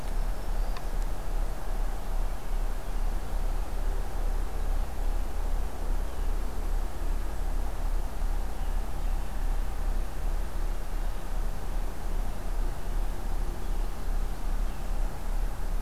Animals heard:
Black-throated Green Warbler (Setophaga virens)

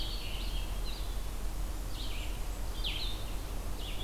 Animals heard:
Blackburnian Warbler (Setophaga fusca), Red-eyed Vireo (Vireo olivaceus), Blue-headed Vireo (Vireo solitarius)

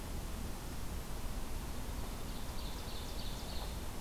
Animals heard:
Ovenbird (Seiurus aurocapilla)

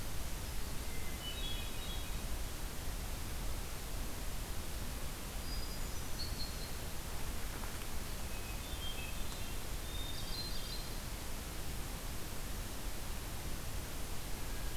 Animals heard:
Hermit Thrush (Catharus guttatus), unidentified call

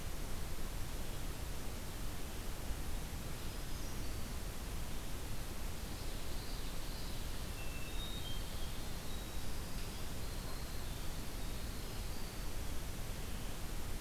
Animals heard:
Common Yellowthroat (Geothlypis trichas), Hermit Thrush (Catharus guttatus), Winter Wren (Troglodytes hiemalis)

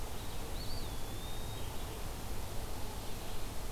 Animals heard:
Eastern Wood-Pewee (Contopus virens), Red-eyed Vireo (Vireo olivaceus)

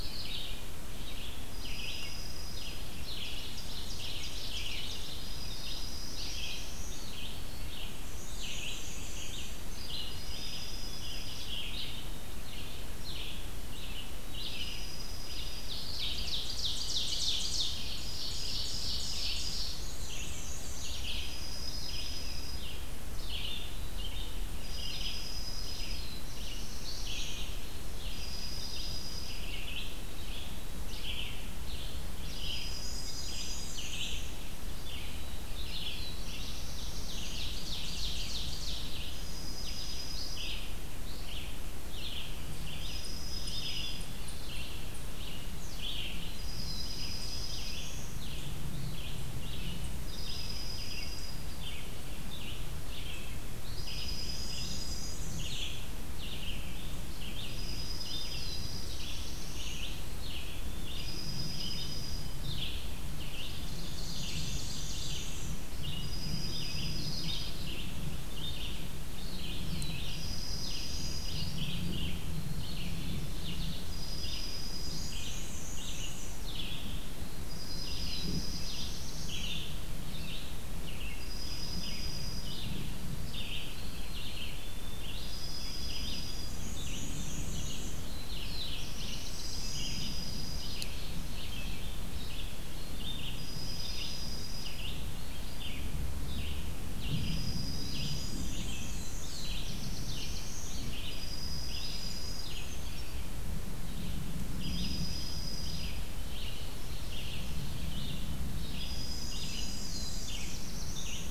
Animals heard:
Black-and-white Warbler (Mniotilta varia), Brown Creeper (Certhia americana), White-throated Sparrow (Zonotrichia albicollis), Red-eyed Vireo (Vireo olivaceus), Black-throated Blue Warbler (Setophaga caerulescens), Dark-eyed Junco (Junco hyemalis), Ovenbird (Seiurus aurocapilla)

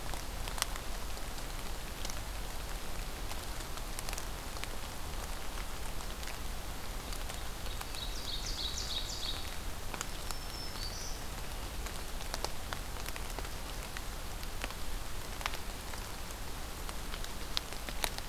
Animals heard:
Ovenbird (Seiurus aurocapilla), Black-throated Green Warbler (Setophaga virens)

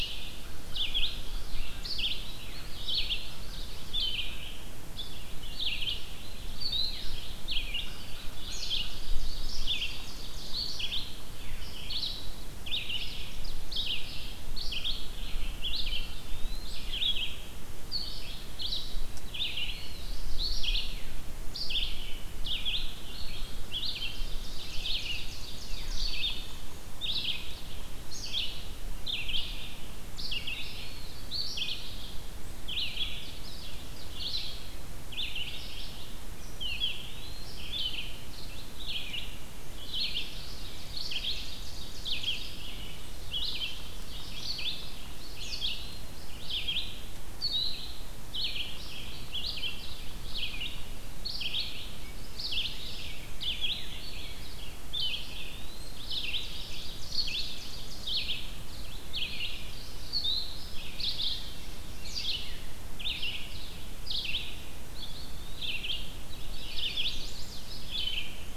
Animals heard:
American Crow (Corvus brachyrhynchos), Eastern Wood-Pewee (Contopus virens), Ovenbird (Seiurus aurocapilla), Chestnut-sided Warbler (Setophaga pensylvanica), Red-eyed Vireo (Vireo olivaceus)

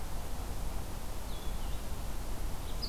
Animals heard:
Blue-headed Vireo (Vireo solitarius)

